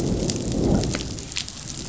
{"label": "biophony, growl", "recorder": "SoundTrap 500"}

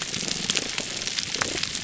{"label": "biophony, pulse", "recorder": "SoundTrap 300"}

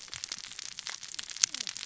{"label": "biophony, cascading saw", "recorder": "SoundTrap 600 or HydroMoth"}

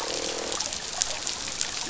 {"label": "biophony, croak", "recorder": "SoundTrap 500"}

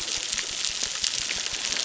{"label": "biophony, crackle", "recorder": "SoundTrap 600"}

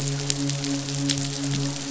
{"label": "biophony, midshipman", "recorder": "SoundTrap 500"}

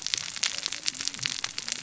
{"label": "biophony, cascading saw", "recorder": "SoundTrap 600 or HydroMoth"}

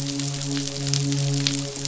{"label": "biophony, midshipman", "recorder": "SoundTrap 500"}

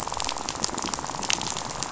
{"label": "biophony, rattle", "recorder": "SoundTrap 500"}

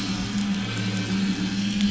{"label": "anthrophony, boat engine", "recorder": "SoundTrap 500"}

